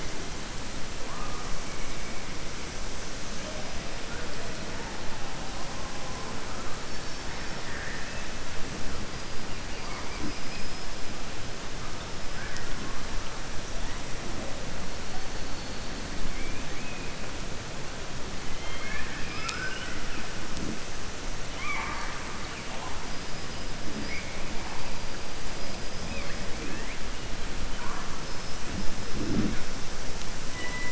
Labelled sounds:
18.5	20.2	killer whale, southern resident, 1.2 to 5.2 kHz
21.5	22.2	killer whale, southern resident, 0.79 to 3.4 kHz

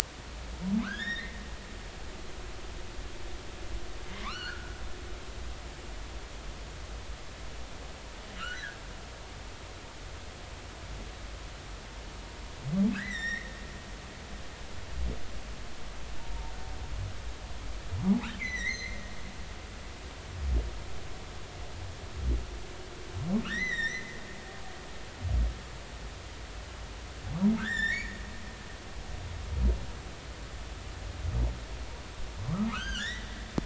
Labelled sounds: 0.8	1.4	humpback whale, 0.96 to 3.8 kHz
4.2	4.7	humpback whale, 0.96 to 4.5 kHz
8.4	8.8	humpback whale, 1.2 to 2.0 kHz
12.9	13.6	humpback whale, 1.4 to 6.0 kHz
16.2	16.5	humpback whale, 0.86 to 0.99 kHz
18.4	19.0	humpback whale, 1.8 to 6.4 kHz
23.4	24.1	humpback whale, 1.1 to 6.1 kHz
27.6	28.2	humpback whale, 1.2 to 7.5 kHz
32.7	33.2	humpback whale, 0.90 to 6.5 kHz

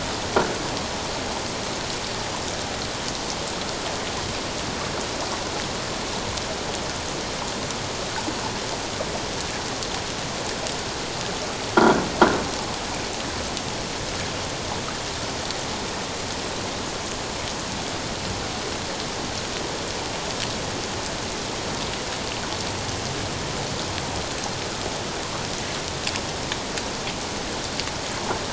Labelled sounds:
11.8	12.0	croaking sound likely from a nearby submerged object, 1.3 to 1.6 kHz

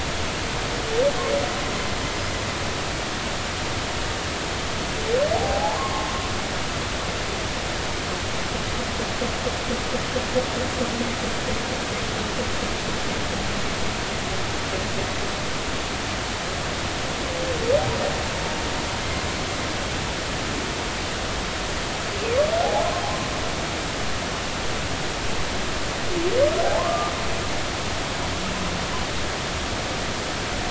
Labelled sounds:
5.3	6.1	humpback whale, 0.80 to 1.2 kHz
22.6	22.9	humpback whale, 0.80 to 0.90 kHz
26.8	27.1	humpback whale, 0.96 to 1.2 kHz

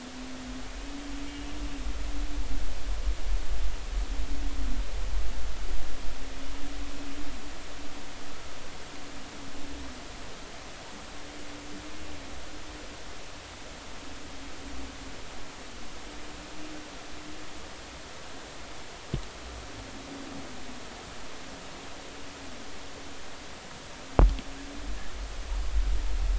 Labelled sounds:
1.3	1.5	humpback whale, 2.8 to 2.9 kHz

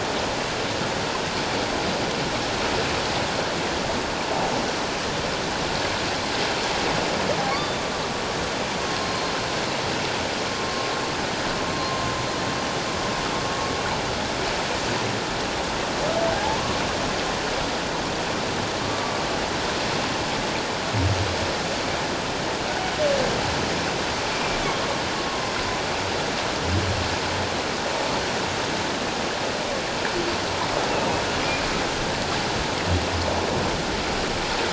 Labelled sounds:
7.5	7.8	humpback whale, 3.5 to 4.8 kHz
9.0	9.3	humpback whale, 4.2 to 4.3 kHz
11.7	12.0	humpback whale, 1.0 to 1.1 kHz
16.4	16.8	humpback whale, 0.78 to 1.2 kHz
18.8	19.1	humpback whale, 1.1 to 1.2 kHz
25.3	25.5	humpback whale, 1.0 to 1.1 kHz

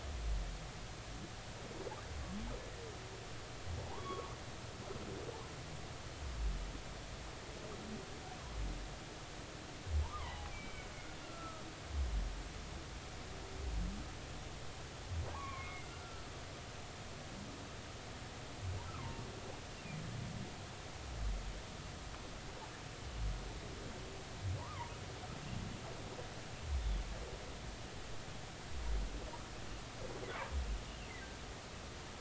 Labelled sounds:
3.8	4.3	humpback whale, 0.80 to 1.2 kHz
10.0	11.6	humpback whale, 0.80 to 3.3 kHz
15.3	16.3	humpback whale, 0.80 to 2.5 kHz
19.0	19.2	humpback whale, 0.86 to 1.1 kHz
24.6	24.9	humpback whale, 0.83 to 1.3 kHz

